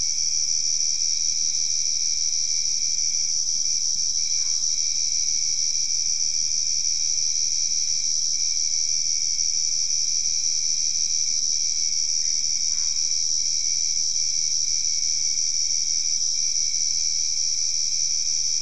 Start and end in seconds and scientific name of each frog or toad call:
4.1	4.8	Boana albopunctata
12.2	13.2	Boana albopunctata